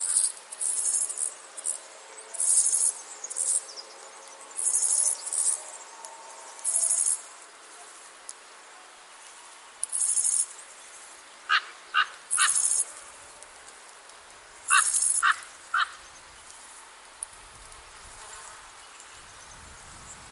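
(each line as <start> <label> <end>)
0.0 Crickets chirping loudly. 7.2
9.8 Crickets chirping loudly. 10.6
11.5 A crow caws repeatedly. 12.5
12.3 Crickets chirping loudly. 13.0
14.6 Crickets chirping loudly. 15.4
14.6 A crow caws repeatedly. 16.0
18.0 An insect buzzes nearby. 18.7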